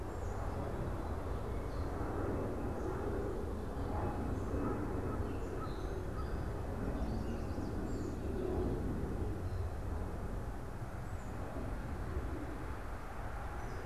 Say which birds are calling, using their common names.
Gray Catbird, American Crow, Chestnut-sided Warbler, Black-capped Chickadee